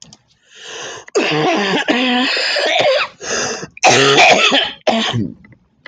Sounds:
Cough